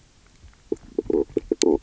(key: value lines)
label: biophony, knock croak
recorder: SoundTrap 300